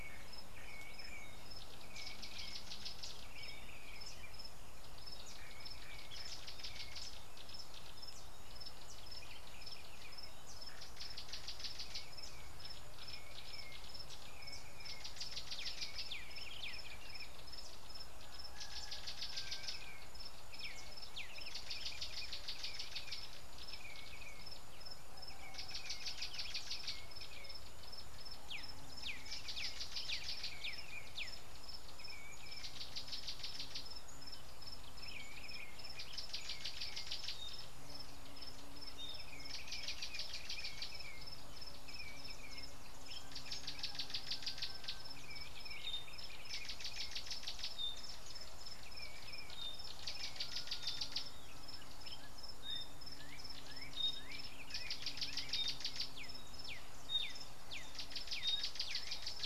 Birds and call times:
Gray-backed Camaroptera (Camaroptera brevicaudata): 2.5s, 11.7s, 26.2s, 40.3s, 50.6s
Black-backed Puffback (Dryoscopus cubla): 28.5s, 56.7s
Thrush Nightingale (Luscinia luscinia): 39.0s

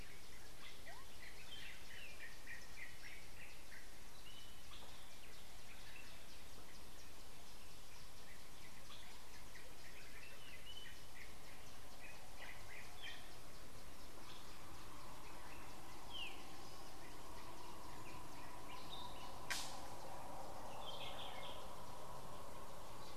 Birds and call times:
Yellow-whiskered Greenbul (Eurillas latirostris): 2.1s, 21.2s
Waller's Starling (Onychognathus walleri): 16.1s

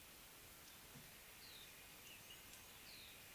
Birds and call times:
Pale White-eye (Zosterops flavilateralis): 1.6s

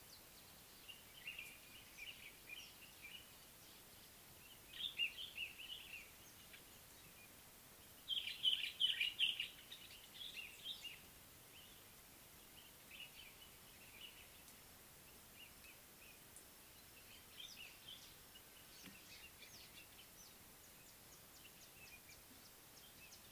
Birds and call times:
Common Bulbul (Pycnonotus barbatus): 5.0s, 8.7s

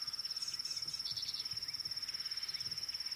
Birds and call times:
Rattling Cisticola (Cisticola chiniana): 1.2s

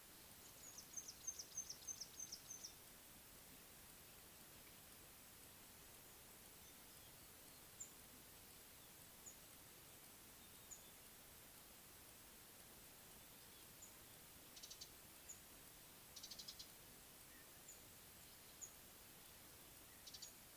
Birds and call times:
Mouse-colored Penduline-Tit (Anthoscopus musculus): 1.6s, 9.3s, 15.3s, 18.6s
Beautiful Sunbird (Cinnyris pulchellus): 16.4s

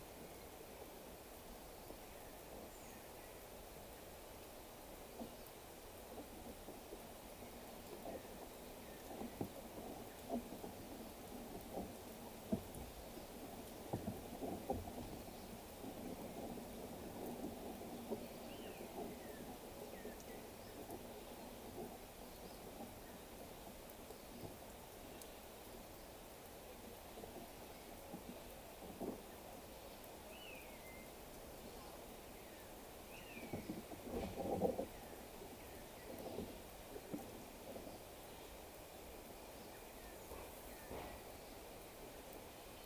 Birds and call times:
African Emerald Cuckoo (Chrysococcyx cupreus): 3.2s
Common Buzzard (Buteo buteo): 30.6s

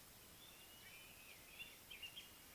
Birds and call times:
Violet-backed Starling (Cinnyricinclus leucogaster): 1.1s

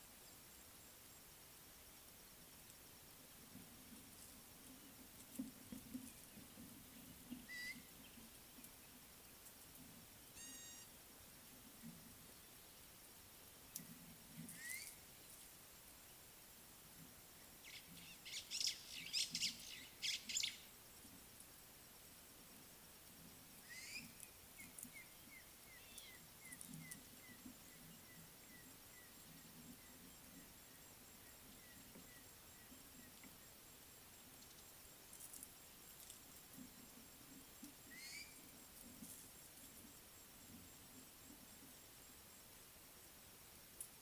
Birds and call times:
Gray-backed Camaroptera (Camaroptera brevicaudata): 10.6s
White-browed Sparrow-Weaver (Plocepasser mahali): 19.2s
African Gray Hornbill (Lophoceros nasutus): 25.4s, 27.3s

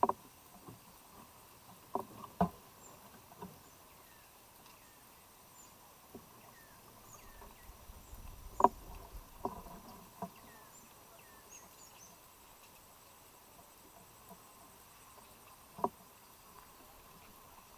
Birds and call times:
African Emerald Cuckoo (Chrysococcyx cupreus): 6.5s

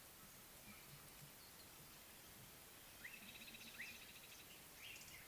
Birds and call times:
African Thrush (Turdus pelios): 3.6s

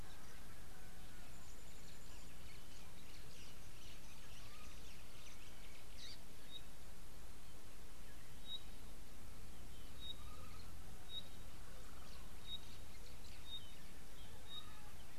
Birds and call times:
Parrot-billed Sparrow (Passer gongonensis): 6.1s
Pygmy Batis (Batis perkeo): 12.5s

